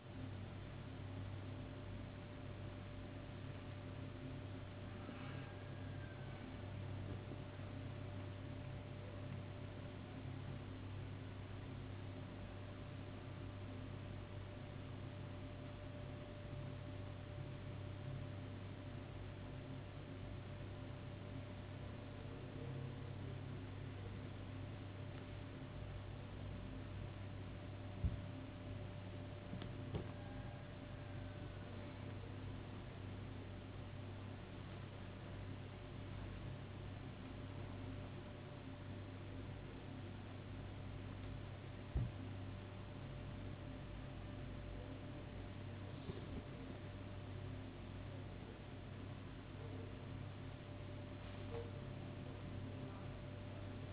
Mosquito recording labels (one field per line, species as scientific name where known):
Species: no mosquito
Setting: insect culture